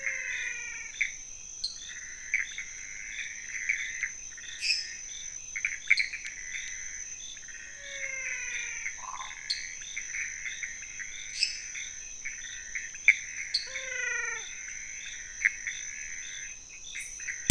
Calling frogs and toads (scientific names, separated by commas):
Physalaemus albonotatus, Leptodactylus podicipinus, Pithecopus azureus, Dendropsophus nanus, Dendropsophus minutus, Phyllomedusa sauvagii